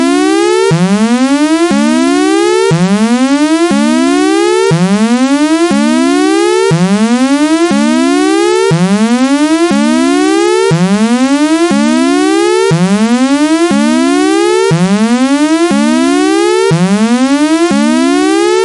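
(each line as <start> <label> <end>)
0.0 A clear sweeping siren sounds. 18.6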